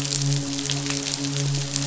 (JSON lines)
{"label": "biophony, midshipman", "recorder": "SoundTrap 500"}